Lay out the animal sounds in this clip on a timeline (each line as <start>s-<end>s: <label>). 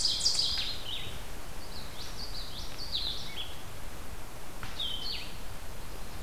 0.0s-0.5s: Ovenbird (Seiurus aurocapilla)
0.0s-6.2s: Blue-headed Vireo (Vireo solitarius)
1.5s-3.5s: Common Yellowthroat (Geothlypis trichas)